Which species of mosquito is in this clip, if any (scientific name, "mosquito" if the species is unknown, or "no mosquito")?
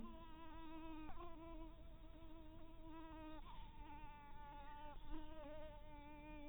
mosquito